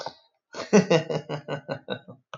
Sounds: Laughter